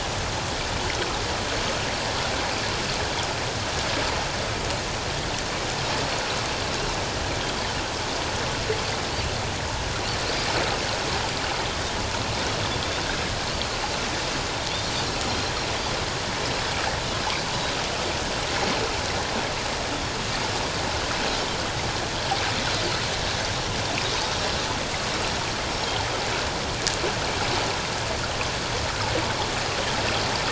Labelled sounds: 15.3	15.5	Pacific white-sided dolphin, 4.0 to 4.2 kHz

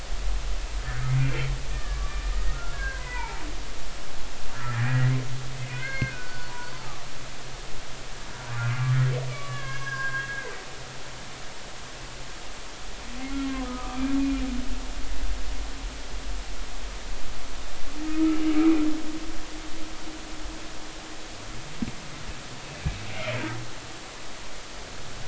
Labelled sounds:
1.2	3.4	humpback whale, 0.80 to 2.6 kHz
4.5	5.1	humpback whale, 1.3 to 2.0 kHz
5.7	6.5	humpback whale, 1.4 to 4.5 kHz
9.3	10.5	humpback whale, 0.99 to 3.4 kHz
13.6	14.0	humpback whale, 1.2 to 1.3 kHz
18.0	18.4	humpback whale, 1.2 to 1.4 kHz

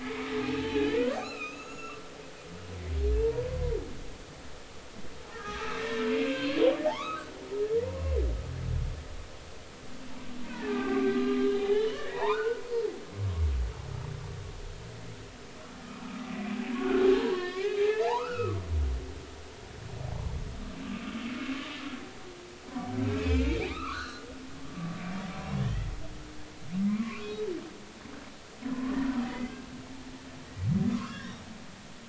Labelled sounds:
0.4	2.0	humpback whale, 0.80 to 7.0 kHz
3.2	3.8	humpback whale, 0.86 to 1.1 kHz
5.3	8.2	humpback whale, 0.80 to 5.4 kHz
10.7	12.6	humpback whale, 0.80 to 3.7 kHz
13.1	13.4	humpback whale, 3.6 to 3.8 kHz
16.0	18.6	humpback whale, 0.80 to 5.0 kHz
20.8	21.1	humpback whale, 1.1 to 1.2 kHz
23.1	24.3	humpback whale, 0.99 to 5.4 kHz
25.4	25.9	humpback whale, 1.6 to 3.0 kHz
26.9	27.5	humpback whale, 0.99 to 3.9 kHz
28.7	29.6	humpback whale, 0.96 to 2.1 kHz
30.9	31.4	humpback whale, 0.99 to 2.0 kHz

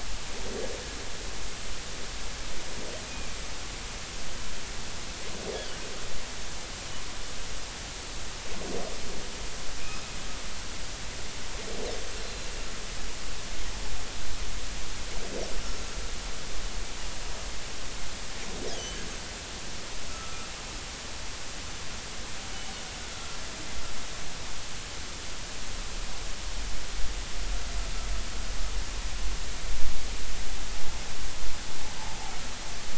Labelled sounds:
12.2	12.5	Pacific white-sided dolphin, 4.0 to 4.2 kHz
18.7	19.0	Pacific white-sided dolphin, 2.9 to 3.4 kHz
20.1	20.5	humpback whale, 1.2 to 1.4 kHz
23.1	23.4	humpback whale, 1.3 to 1.4 kHz

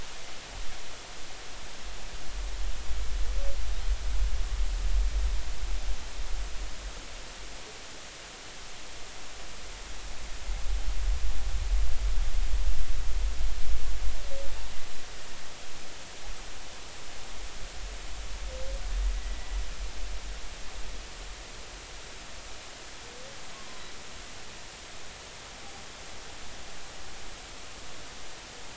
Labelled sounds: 19.1	19.5	humpback whale, 1.9 to 2.0 kHz

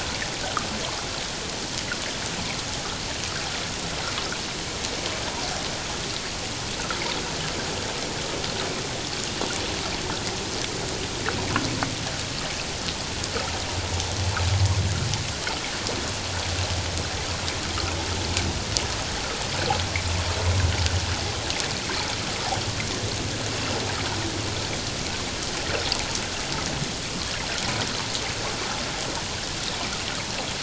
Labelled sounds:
0.4	0.7	water noise, 1.1 to 1.6 kHz

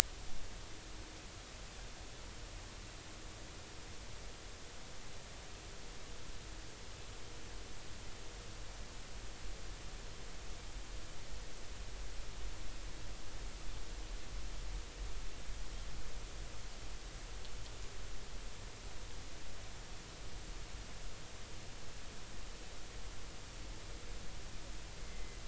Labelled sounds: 25.0	25.4	Pacific white-sided dolphin, 2.0 to 2.1 kHz

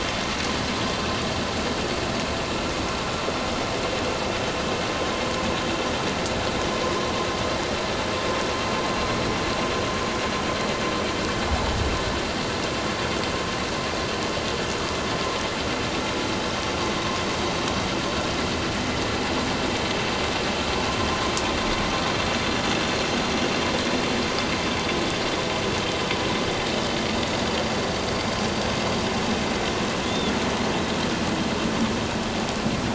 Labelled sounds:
30.0	30.4	killer whale, northern resident, 3.3 to 3.7 kHz

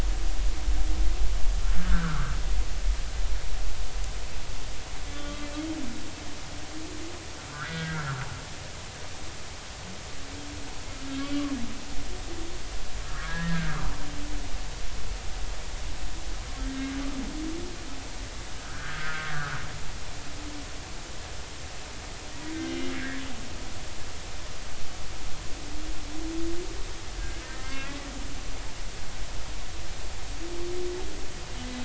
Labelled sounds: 1.8	2.4	humpback whale, 1.1 to 1.8 kHz
5.1	5.5	humpback whale, 1.1 to 3.3 kHz
7.5	8.1	humpback whale, 1.2 to 2.0 kHz
11.2	11.4	humpback whale, 2.2 to 2.3 kHz
13.0	13.8	humpback whale, 1.2 to 1.9 kHz
18.9	20.2	humpback whale, 1.2 to 1.7 kHz
22.5	23.2	humpback whale, 1.5 to 3.7 kHz
27.2	28.0	humpback whale, 1.5 to 2.3 kHz
28.6	28.9	humpback whale, 1.5 to 1.7 kHz

